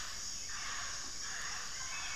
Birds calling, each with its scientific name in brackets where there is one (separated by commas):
Hauxwell's Thrush (Turdus hauxwelli), Plumbeous Pigeon (Patagioenas plumbea)